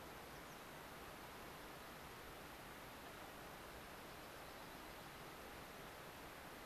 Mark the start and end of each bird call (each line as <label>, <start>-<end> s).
American Pipit (Anthus rubescens), 0.3-0.5 s
Dark-eyed Junco (Junco hyemalis), 4.3-5.5 s